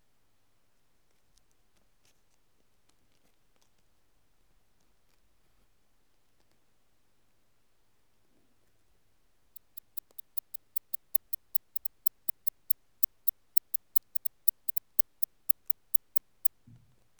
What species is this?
Barbitistes fischeri